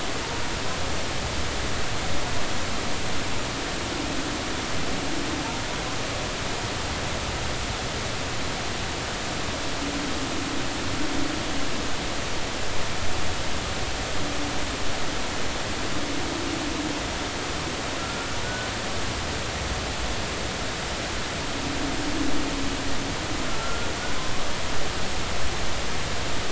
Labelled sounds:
18.0	18.7	humpback whale, 1.3 to 1.5 kHz
23.6	23.9	humpback whale, 1.3 to 1.5 kHz

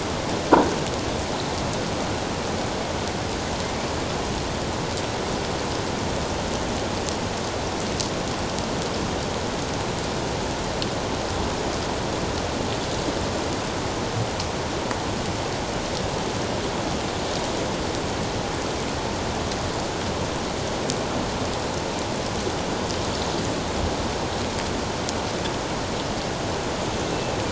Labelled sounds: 27.0	27.4	killer whale, northern resident, A clan, AA subclan, A04 pod, 2.5 to 2.7 kHz

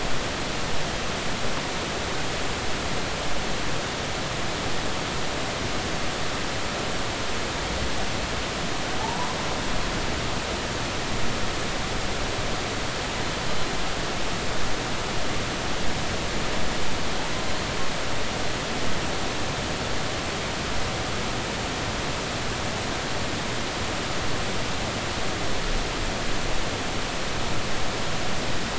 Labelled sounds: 9.0	9.3	humpback whale, 0.80 to 1.0 kHz

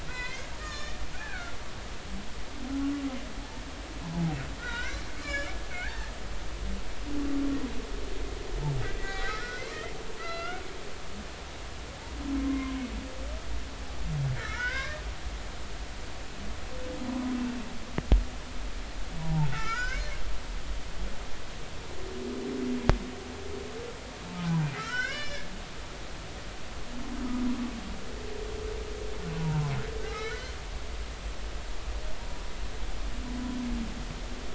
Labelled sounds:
0.1	1.6	humpback whale, 0.96 to 5.6 kHz
4.0	6.1	humpback whale, 0.80 to 5.3 kHz
9.0	10.6	humpback whale, 1.2 to 4.2 kHz
12.4	12.8	humpback whale, 0.99 to 1.1 kHz
14.3	15.0	humpback whale, 0.93 to 2.3 kHz
19.2	20.0	humpback whale, 0.80 to 6.3 kHz
24.8	25.5	humpback whale, 1.2 to 7.1 kHz
29.4	29.6	humpback whale, 0.86 to 1.0 kHz
30.0	30.5	humpback whale, 1.2 to 2.3 kHz

